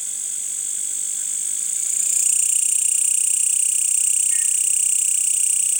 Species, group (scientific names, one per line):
Mecopoda elongata
Orthoptera